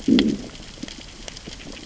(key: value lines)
label: biophony, growl
recorder: SoundTrap 600 or HydroMoth